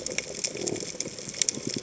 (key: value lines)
label: biophony
recorder: HydroMoth